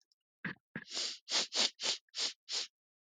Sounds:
Sniff